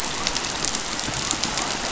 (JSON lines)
{"label": "biophony", "recorder": "SoundTrap 500"}